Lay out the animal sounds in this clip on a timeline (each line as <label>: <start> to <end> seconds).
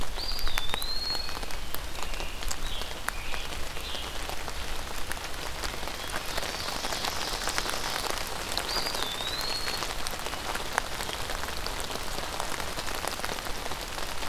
Eastern Wood-Pewee (Contopus virens): 0.0 to 1.8 seconds
Scarlet Tanager (Piranga olivacea): 1.8 to 4.2 seconds
Ovenbird (Seiurus aurocapilla): 6.1 to 8.3 seconds
Eastern Wood-Pewee (Contopus virens): 8.4 to 9.8 seconds